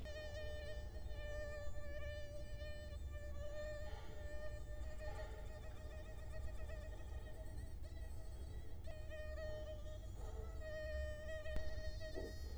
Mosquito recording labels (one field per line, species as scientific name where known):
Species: Culex quinquefasciatus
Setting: cup